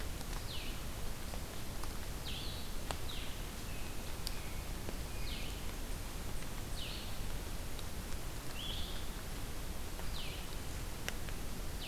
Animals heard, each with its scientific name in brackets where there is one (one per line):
American Robin (Turdus migratorius)
Blue-headed Vireo (Vireo solitarius)